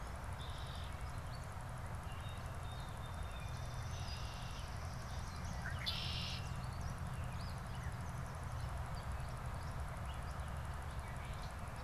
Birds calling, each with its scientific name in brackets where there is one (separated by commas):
Swamp Sparrow (Melospiza georgiana), Red-winged Blackbird (Agelaius phoeniceus), Gray Catbird (Dumetella carolinensis), Song Sparrow (Melospiza melodia)